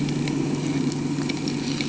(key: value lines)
label: anthrophony, boat engine
recorder: HydroMoth